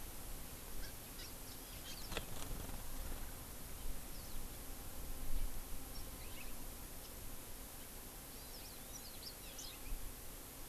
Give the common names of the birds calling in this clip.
Hawaii Amakihi, Warbling White-eye, House Finch